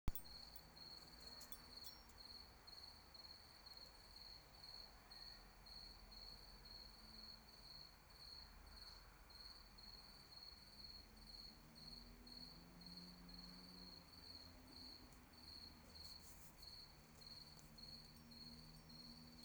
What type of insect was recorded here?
orthopteran